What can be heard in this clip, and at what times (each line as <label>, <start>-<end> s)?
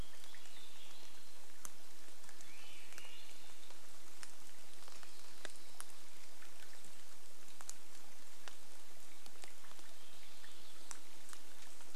Swainson's Thrush song, 0-4 s
rain, 0-12 s
Swainson's Thrush song, 10-12 s